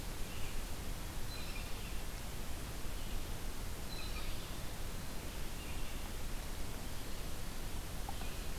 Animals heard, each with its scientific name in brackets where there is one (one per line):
Red-eyed Vireo (Vireo olivaceus)
Blue Jay (Cyanocitta cristata)